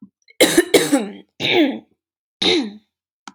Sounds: Throat clearing